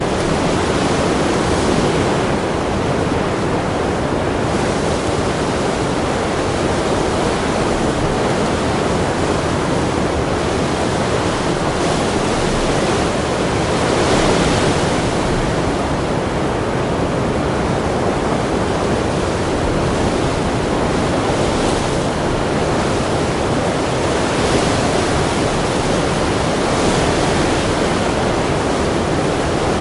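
A strong wind is blowing steadily. 0:00.0 - 0:13.7
A strong wind blows steadily with increasing intensity. 0:13.7 - 0:14.9
A powerful sea wind blows steadily. 0:15.0 - 0:24.4
A strong sea wind blows with two brief gusts. 0:24.4 - 0:29.7

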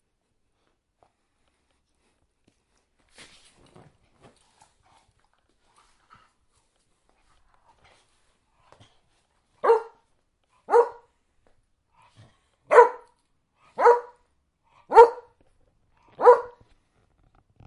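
A curious dog wakes up from its bed. 0:00.0 - 0:08.7
A dog woofs and barks at someone outside the window. 0:08.7 - 0:17.7

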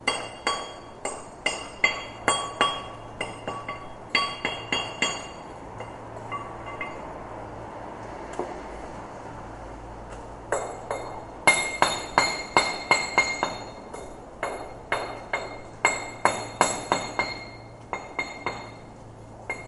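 Low-pitched dull hammering against a solid surface. 0:00.0 - 0:05.2
Soft, dull hammer taps that are quiet and subdued, lacking resonance. 0:05.2 - 0:08.6
Soft, dull hammer taps that are quiet and subdued, lacking resonance. 0:10.4 - 0:11.4
Low-pitched dull hammering against a solid surface. 0:11.4 - 0:13.7
Soft, dull hammer taps that are quiet and subdued, lacking resonance. 0:14.4 - 0:15.8
Low-pitched dull hammering against a solid surface. 0:15.8 - 0:17.4
Soft, dull hammer taps that are quiet and subdued, lacking resonance. 0:17.9 - 0:19.7

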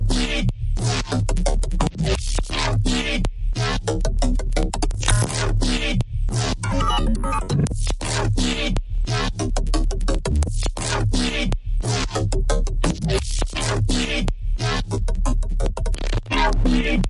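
A strongly distorted drum plays with varying rhythms and fluctuating pitches. 0:00.0 - 0:17.1

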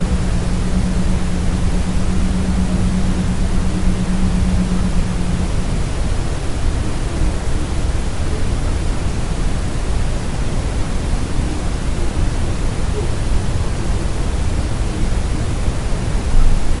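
A monotone white noise with barely audible voices. 0:00.0 - 0:16.8

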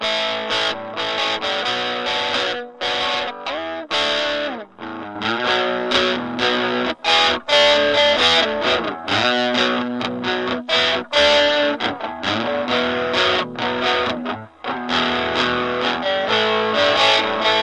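An electric guitar is playing a rhythmic rock tune noisily. 0:00.0 - 0:17.6

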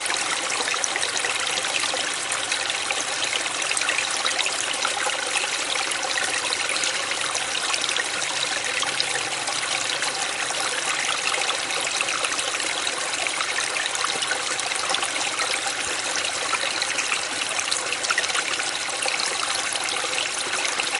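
The constant and clear sound of flowing water. 0:00.0 - 0:21.0

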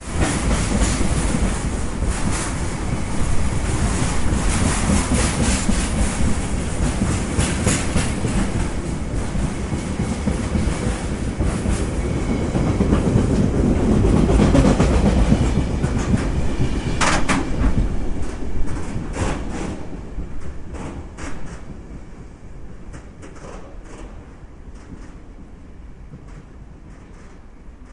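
The wagons of a passing train rattle and slowly fade away. 0:00.0 - 0:27.9

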